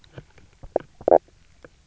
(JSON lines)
{"label": "biophony, knock croak", "recorder": "SoundTrap 300"}